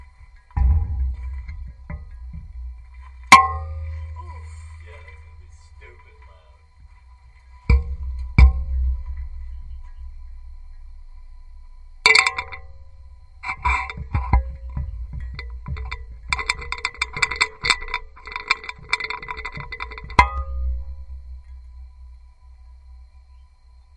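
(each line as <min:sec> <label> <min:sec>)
0:00.0 A loud bang sounds nearby. 0:04.2
0:00.0 A muffled rattling sound nearby. 0:04.2
0:00.0 A continuous muffled rattling sound occurs nearby in an irregular pattern. 0:24.0
0:00.0 An occasional loud dinging sound. 0:24.0
0:00.0 Occasional muffled hollow loud bangs occur in irregular patterns. 0:24.0
0:00.0 Soft scratching. 0:24.0
0:00.0 Someone speaking faintly in the background. 0:24.0
0:04.2 A person speaking faintly in the background. 0:07.7
0:07.6 Muffled hollow loud bangs. 0:10.0
0:11.8 Loud dings sound nearby. 0:13.2
0:13.4 Soft scratching sounds. 0:16.1
0:16.2 A continuous dinging noise. 0:20.2
0:20.1 A loud hollow bang sounds. 0:24.0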